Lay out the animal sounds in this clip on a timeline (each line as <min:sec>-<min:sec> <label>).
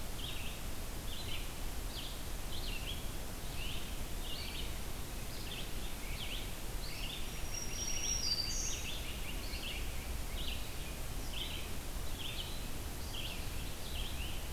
0:00.0-0:14.5 Red-eyed Vireo (Vireo olivaceus)
0:06.6-0:09.9 Great Crested Flycatcher (Myiarchus crinitus)
0:06.8-0:09.0 Black-throated Green Warbler (Setophaga virens)
0:14.1-0:14.4 Great Crested Flycatcher (Myiarchus crinitus)